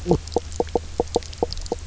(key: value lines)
label: biophony, knock croak
recorder: SoundTrap 300